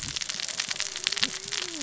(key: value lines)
label: biophony, cascading saw
recorder: SoundTrap 600 or HydroMoth